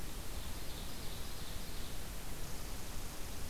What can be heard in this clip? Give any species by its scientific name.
Seiurus aurocapilla, Tamiasciurus hudsonicus